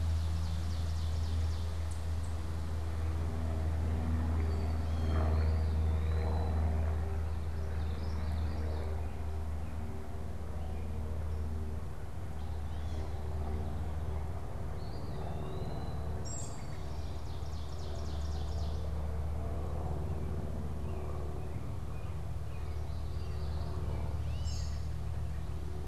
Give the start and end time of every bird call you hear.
[0.00, 2.66] Ovenbird (Seiurus aurocapilla)
[0.00, 25.87] Eastern Wood-Pewee (Contopus virens)
[7.16, 9.06] Common Yellowthroat (Geothlypis trichas)
[16.06, 16.96] American Robin (Turdus migratorius)
[16.26, 19.26] Ovenbird (Seiurus aurocapilla)
[19.86, 24.96] American Robin (Turdus migratorius)
[22.26, 24.06] Common Yellowthroat (Geothlypis trichas)
[24.06, 24.56] Gray Catbird (Dumetella carolinensis)

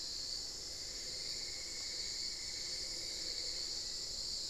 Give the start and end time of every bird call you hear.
[0.00, 4.09] Cinnamon-throated Woodcreeper (Dendrexetastes rufigula)
[0.00, 4.09] unidentified bird
[0.00, 4.49] Hauxwell's Thrush (Turdus hauxwelli)
[0.00, 4.49] Spot-winged Antshrike (Pygiptila stellaris)

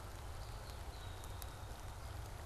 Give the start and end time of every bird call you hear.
[0.28, 1.88] Red-winged Blackbird (Agelaius phoeniceus)

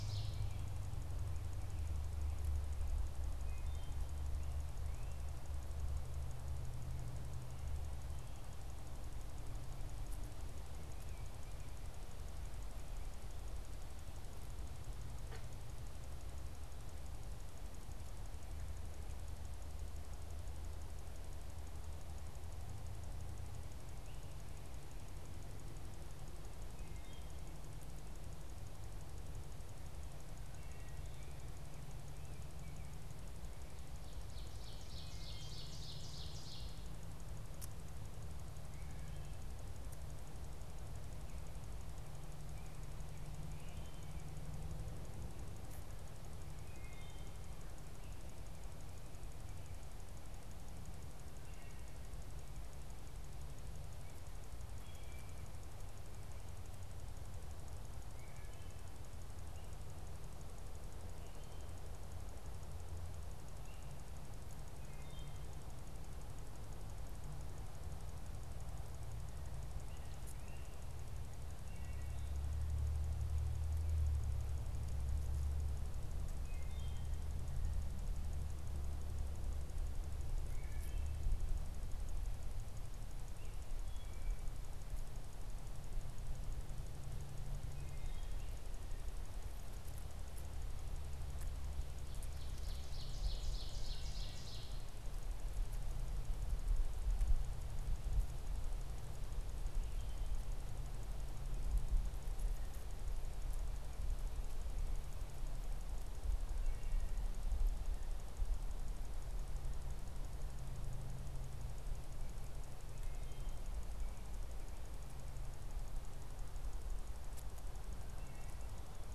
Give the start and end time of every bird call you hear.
[0.00, 0.76] Ovenbird (Seiurus aurocapilla)
[3.35, 4.05] Wood Thrush (Hylocichla mustelina)
[10.65, 12.15] American Robin (Turdus migratorius)
[26.66, 27.36] Wood Thrush (Hylocichla mustelina)
[30.45, 31.25] Wood Thrush (Hylocichla mustelina)
[31.86, 33.16] American Robin (Turdus migratorius)
[34.05, 37.16] Ovenbird (Seiurus aurocapilla)
[43.45, 44.35] Wood Thrush (Hylocichla mustelina)
[46.55, 47.45] Wood Thrush (Hylocichla mustelina)
[51.26, 51.95] Wood Thrush (Hylocichla mustelina)
[54.66, 55.66] Wood Thrush (Hylocichla mustelina)
[58.05, 58.76] Wood Thrush (Hylocichla mustelina)
[63.45, 63.95] American Robin (Turdus migratorius)
[64.75, 65.45] Wood Thrush (Hylocichla mustelina)
[69.36, 70.95] American Robin (Turdus migratorius)
[71.56, 72.36] Wood Thrush (Hylocichla mustelina)
[76.36, 77.25] Wood Thrush (Hylocichla mustelina)
[80.36, 81.25] Wood Thrush (Hylocichla mustelina)
[83.66, 84.45] Wood Thrush (Hylocichla mustelina)
[87.75, 88.56] Wood Thrush (Hylocichla mustelina)
[91.75, 95.06] Ovenbird (Seiurus aurocapilla)
[106.45, 107.16] Wood Thrush (Hylocichla mustelina)
[112.95, 114.06] Wood Thrush (Hylocichla mustelina)
[117.95, 118.75] Wood Thrush (Hylocichla mustelina)

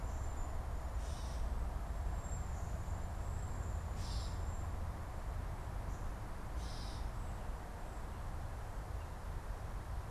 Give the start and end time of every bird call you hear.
[0.00, 5.01] Cedar Waxwing (Bombycilla cedrorum)
[0.00, 10.10] Gray Catbird (Dumetella carolinensis)

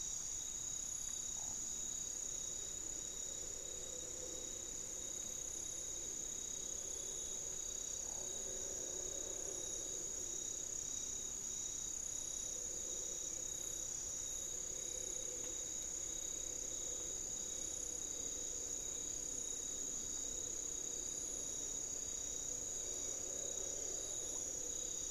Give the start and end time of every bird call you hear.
[7.80, 10.00] unidentified bird
[14.60, 16.60] unidentified bird
[17.80, 25.11] Hauxwell's Thrush (Turdus hauxwelli)

